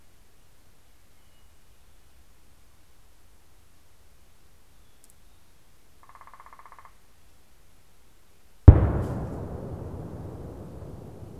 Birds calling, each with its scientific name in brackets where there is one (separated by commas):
Hermit Thrush (Catharus guttatus), Northern Flicker (Colaptes auratus)